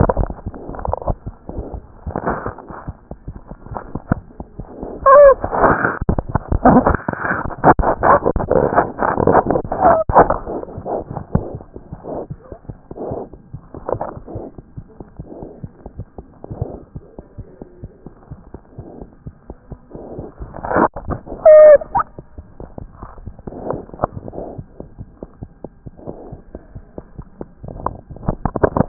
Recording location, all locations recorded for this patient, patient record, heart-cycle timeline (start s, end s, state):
aortic valve (AV)
aortic valve (AV)+mitral valve (MV)
#Age: Infant
#Sex: Female
#Height: 62.0 cm
#Weight: 7.2 kg
#Pregnancy status: False
#Murmur: Unknown
#Murmur locations: nan
#Most audible location: nan
#Systolic murmur timing: nan
#Systolic murmur shape: nan
#Systolic murmur grading: nan
#Systolic murmur pitch: nan
#Systolic murmur quality: nan
#Diastolic murmur timing: nan
#Diastolic murmur shape: nan
#Diastolic murmur grading: nan
#Diastolic murmur pitch: nan
#Diastolic murmur quality: nan
#Outcome: Abnormal
#Campaign: 2014 screening campaign
0.00	24.46	unannotated
24.46	24.58	diastole
24.58	24.64	S1
24.64	24.80	systole
24.80	24.86	S2
24.86	25.00	diastole
25.00	25.08	S1
25.08	25.24	systole
25.24	25.30	S2
25.30	25.44	diastole
25.44	25.52	S1
25.52	25.64	systole
25.64	25.72	S2
25.72	25.85	diastole
25.85	25.92	S1
25.92	26.08	systole
26.08	26.16	S2
26.16	26.32	diastole
26.32	26.40	S1
26.40	26.54	systole
26.54	26.62	S2
26.62	26.76	diastole
26.76	26.84	S1
26.84	26.98	systole
26.98	27.06	S2
27.06	27.20	diastole
27.20	27.28	S1
27.28	27.40	systole
27.40	27.48	S2
27.48	27.64	diastole
27.64	28.88	unannotated